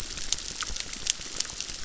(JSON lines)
{"label": "biophony, crackle", "recorder": "SoundTrap 600"}